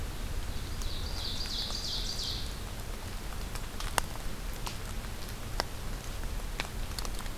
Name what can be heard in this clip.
Ovenbird